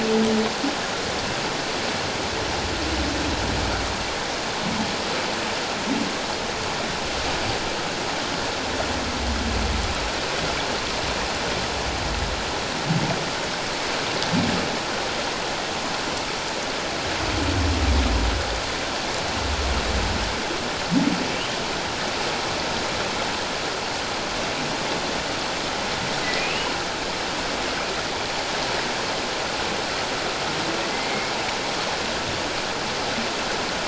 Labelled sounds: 26.4	26.7	humpback whale, 2.3 to 3.0 kHz
30.9	31.3	humpback whale, 2.0 to 2.3 kHz

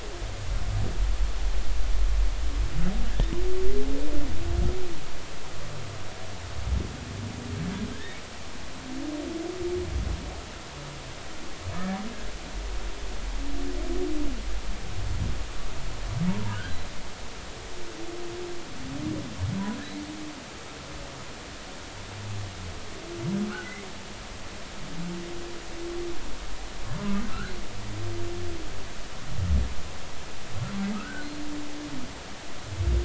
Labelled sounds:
7.9	8.2	humpback whale, 1.5 to 2.0 kHz
16.3	16.8	humpback whale, 0.86 to 1.7 kHz
23.5	23.8	humpback whale, 1.2 to 1.6 kHz
27.3	27.5	humpback whale, 1.2 to 1.7 kHz
30.9	31.3	humpback whale, 1.2 to 1.6 kHz

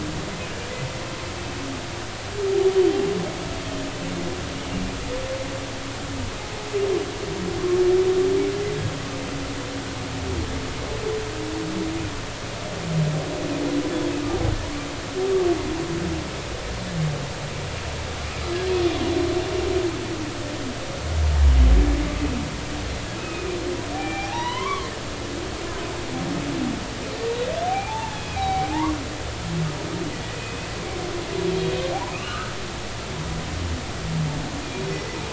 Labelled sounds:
2.5	3.0	humpback whale, 0.80 to 3.2 kHz
23.2	24.9	humpback whale, 0.80 to 4.2 kHz
27.7	28.9	humpback whale, 0.80 to 3.4 kHz
30.4	30.7	humpback whale, 2.4 to 2.6 kHz
32.1	32.5	humpback whale, 1.1 to 2.9 kHz

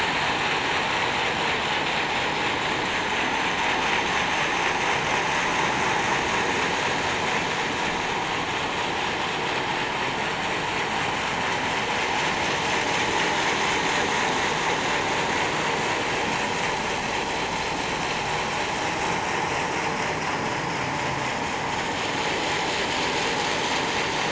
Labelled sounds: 3.2	3.5	vessel noise, 6.0 to 6.3 kHz

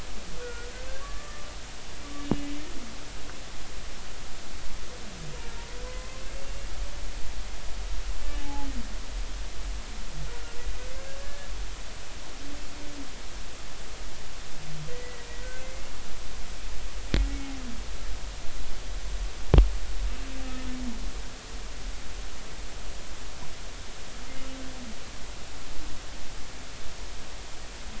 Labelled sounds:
1.0	1.7	humpback whale, 1.1 to 1.9 kHz
2.2	2.5	humpback whale, 2.8 to 2.9 kHz
5.8	6.2	humpback whale, 0.96 to 2.1 kHz
8.3	8.7	humpback whale, 0.80 to 2.9 kHz
11.2	11.5	humpback whale, 1.6 to 1.8 kHz
14.9	15.9	humpback whale, 1.9 to 2.2 kHz

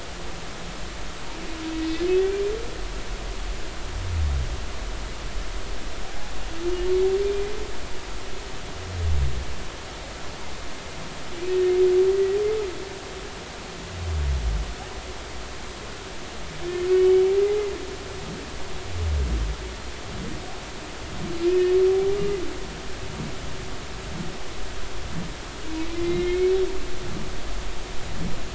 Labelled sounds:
12.1	12.4	humpback whale, 1.9 to 2.0 kHz
16.9	17.3	humpback whale, 2.5 to 3.1 kHz
21.4	21.7	humpback whale, 2.3 to 2.6 kHz
25.9	26.5	humpback whale, 2.0 to 2.3 kHz

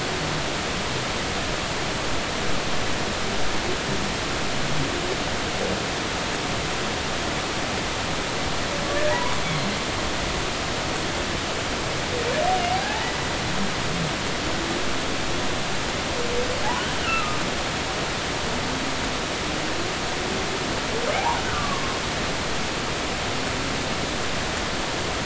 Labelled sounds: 9.1	9.4	humpback whale, 0.80 to 1.2 kHz
12.7	13.1	humpback whale, 0.80 to 0.96 kHz
17.0	17.4	humpback whale, 1.1 to 1.5 kHz
21.1	21.8	humpback whale, 0.80 to 1.2 kHz

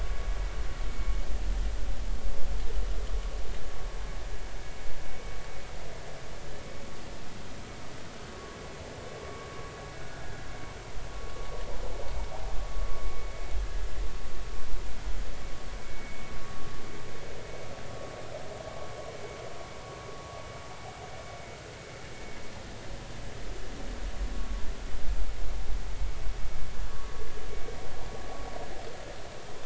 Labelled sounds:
10.0	10.3	vessel noise, 1.3 to 1.5 kHz
15.8	16.3	vessel noise, 2.2 to 2.4 kHz
24.3	24.7	vessel noise, 0.93 to 1.2 kHz

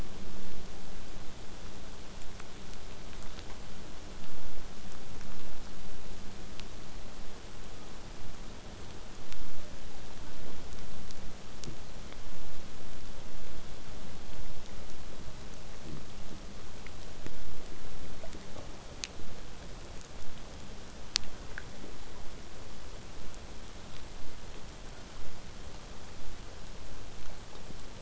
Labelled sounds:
9.5	9.8	killer whale, southern resident, 0.33 to 0.76 kHz
10.3	10.6	killer whale, southern resident, 0.11 to 0.83 kHz
24.2	25.3	killer whale, southern resident, 1.1 to 2.3 kHz

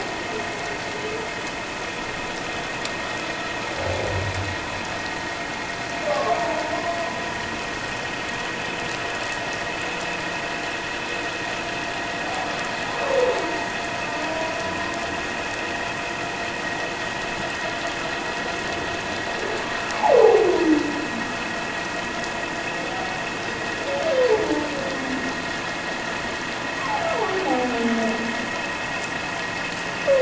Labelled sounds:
6.1	6.4	humpback whale, 1.0 to 1.2 kHz
20.1	20.4	humpback whale, 0.78 to 1.1 kHz
26.8	27.1	humpback whale, 0.78 to 1.2 kHz

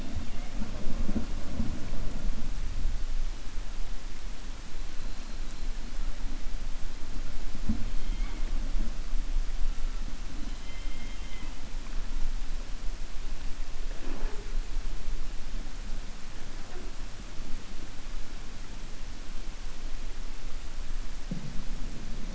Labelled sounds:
10.4	11.5	killer whale, 2.0 to 4.1 kHz

